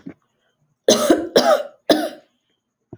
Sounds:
Cough